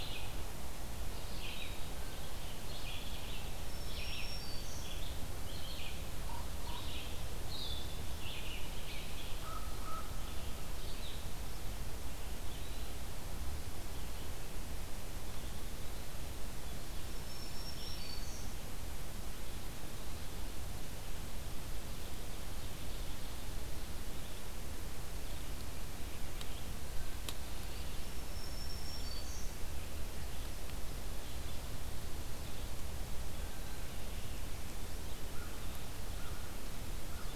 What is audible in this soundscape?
Blue-headed Vireo, Red-eyed Vireo, Black-throated Green Warbler, Common Raven, American Crow